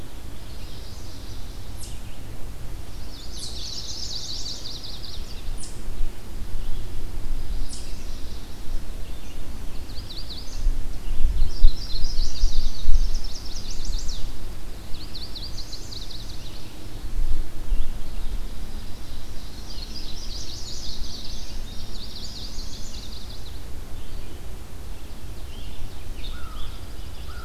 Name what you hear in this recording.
Red-eyed Vireo, Chestnut-sided Warbler, Eastern Chipmunk, Ovenbird, Indigo Bunting, Chipping Sparrow, American Crow